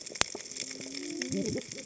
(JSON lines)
{"label": "biophony, cascading saw", "recorder": "HydroMoth"}